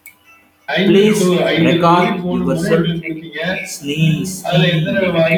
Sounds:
Sneeze